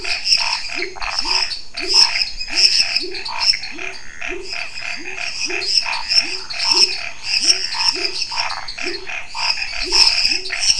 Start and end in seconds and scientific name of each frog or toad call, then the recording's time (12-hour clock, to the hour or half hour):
0.0	10.7	Boana raniceps
0.0	10.7	Dendropsophus minutus
0.0	10.7	Leptodactylus labyrinthicus
0.0	10.7	Pithecopus azureus
0.0	10.7	Scinax fuscovarius
0.9	1.2	Phyllomedusa sauvagii
8.3	8.8	Phyllomedusa sauvagii
~9pm